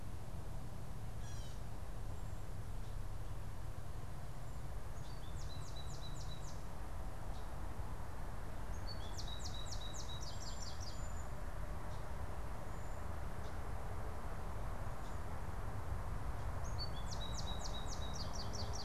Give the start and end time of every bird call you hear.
1.0s-1.7s: Gray Catbird (Dumetella carolinensis)
4.8s-18.8s: American Goldfinch (Spinus tristis)

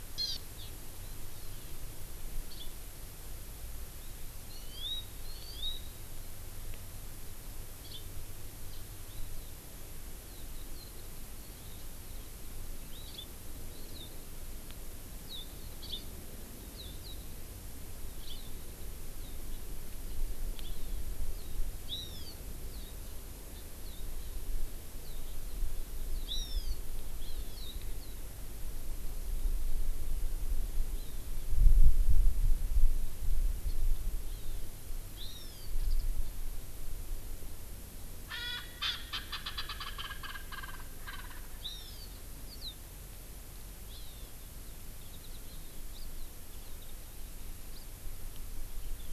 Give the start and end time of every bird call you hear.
0.2s-0.7s: Hawaii Amakihi (Chlorodrepanis virens)
2.5s-2.7s: Hawaii Amakihi (Chlorodrepanis virens)
4.5s-5.8s: Hawaii Amakihi (Chlorodrepanis virens)
7.8s-8.1s: Hawaii Amakihi (Chlorodrepanis virens)
13.1s-13.3s: Hawaii Amakihi (Chlorodrepanis virens)
15.8s-16.0s: Hawaii Amakihi (Chlorodrepanis virens)
18.2s-18.5s: Hawaii Amakihi (Chlorodrepanis virens)
20.6s-21.1s: Hawaii Amakihi (Chlorodrepanis virens)
21.9s-22.3s: Hawaii Amakihi (Chlorodrepanis virens)
26.3s-26.8s: Hawaii Amakihi (Chlorodrepanis virens)
27.2s-27.6s: Hawaii Amakihi (Chlorodrepanis virens)
30.9s-31.3s: Hawaii Amakihi (Chlorodrepanis virens)
34.3s-34.7s: Hawaii Amakihi (Chlorodrepanis virens)
35.2s-35.7s: Hawaii Amakihi (Chlorodrepanis virens)
38.3s-41.5s: Erckel's Francolin (Pternistis erckelii)
41.6s-42.2s: Hawaii Amakihi (Chlorodrepanis virens)
42.5s-42.7s: Warbling White-eye (Zosterops japonicus)
43.9s-44.3s: Hawaii Amakihi (Chlorodrepanis virens)
45.9s-46.1s: Hawaii Amakihi (Chlorodrepanis virens)
47.7s-47.8s: Hawaii Amakihi (Chlorodrepanis virens)

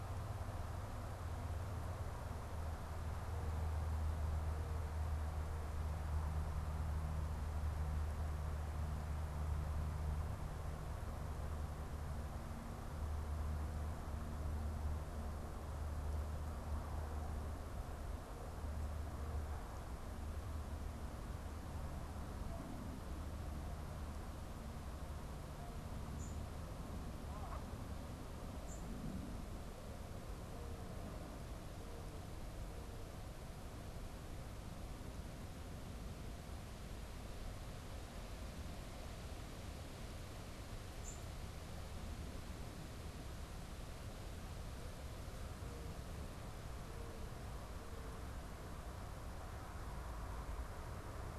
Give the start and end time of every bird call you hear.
25.9s-28.8s: unidentified bird
40.9s-41.2s: unidentified bird

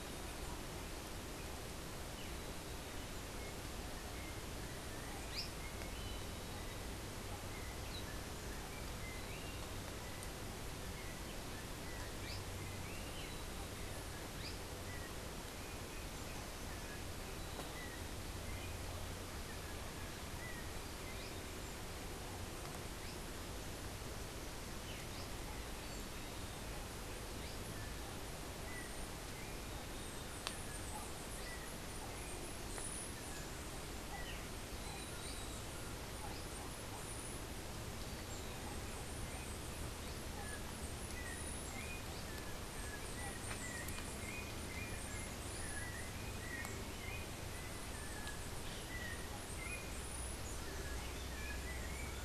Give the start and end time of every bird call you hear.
5.2s-5.5s: Azara's Spinetail (Synallaxis azarae)
40.4s-52.2s: Yellow-backed Oriole (Icterus chrysater)

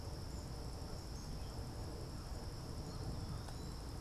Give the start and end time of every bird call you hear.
0.0s-4.0s: Black-capped Chickadee (Poecile atricapillus)

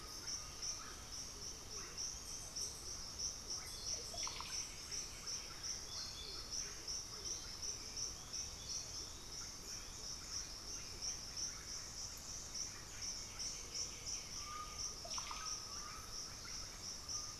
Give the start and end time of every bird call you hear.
0.0s-1.3s: Undulated Tinamou (Crypturellus undulatus)
0.0s-15.1s: Horned Screamer (Anhima cornuta)
0.0s-17.4s: Russet-backed Oropendola (Psarocolius angustifrons)
7.9s-10.4s: Gray Antwren (Myrmotherula menetriesii)
12.8s-15.0s: White-winged Becard (Pachyramphus polychopterus)
14.3s-17.4s: Undulated Tinamou (Crypturellus undulatus)

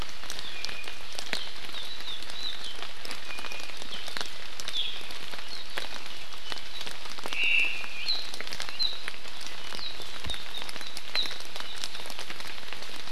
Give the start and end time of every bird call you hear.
0.4s-1.0s: Iiwi (Drepanis coccinea)
3.2s-3.7s: Iiwi (Drepanis coccinea)
7.3s-7.9s: Omao (Myadestes obscurus)

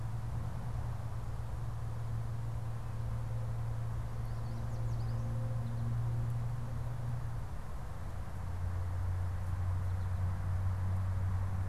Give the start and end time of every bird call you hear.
4.0s-5.3s: Gray Catbird (Dumetella carolinensis)
5.3s-6.0s: American Goldfinch (Spinus tristis)

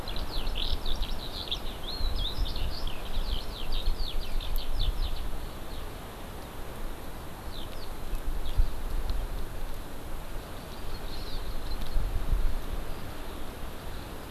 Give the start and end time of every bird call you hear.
0.0s-5.8s: Eurasian Skylark (Alauda arvensis)
7.4s-7.8s: Eurasian Skylark (Alauda arvensis)
10.4s-12.0s: Hawaii Amakihi (Chlorodrepanis virens)

